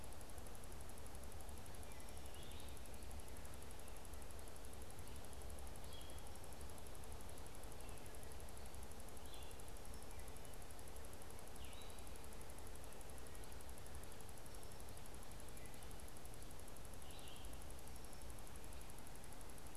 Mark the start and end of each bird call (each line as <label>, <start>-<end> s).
Red-eyed Vireo (Vireo olivaceus), 0.0-19.8 s